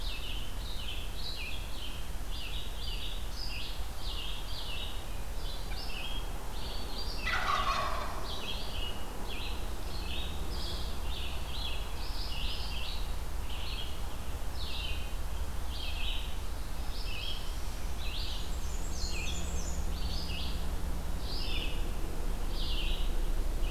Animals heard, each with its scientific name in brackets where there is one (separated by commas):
Wild Turkey (Meleagris gallopavo), Red-eyed Vireo (Vireo olivaceus), Northern Parula (Setophaga americana), Black-and-white Warbler (Mniotilta varia)